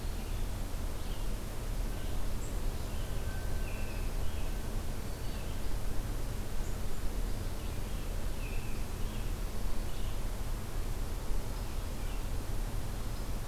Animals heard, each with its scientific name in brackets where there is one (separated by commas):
American Robin (Turdus migratorius), Black-throated Green Warbler (Setophaga virens), Red-eyed Vireo (Vireo olivaceus)